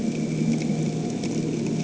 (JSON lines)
{"label": "anthrophony, boat engine", "recorder": "HydroMoth"}